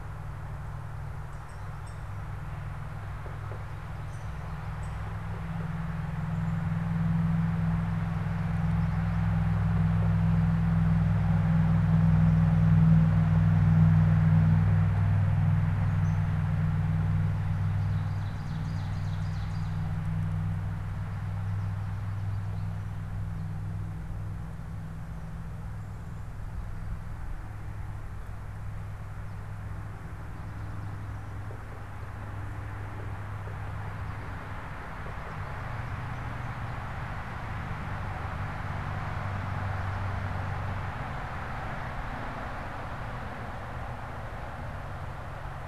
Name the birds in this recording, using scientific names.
unidentified bird, Poecile atricapillus, Seiurus aurocapilla